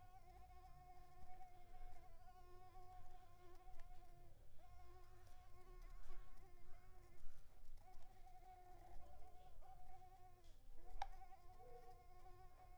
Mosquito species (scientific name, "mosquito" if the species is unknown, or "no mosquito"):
Mansonia uniformis